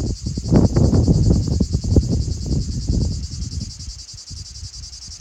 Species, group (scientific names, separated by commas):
Lyristes plebejus, Cicadidae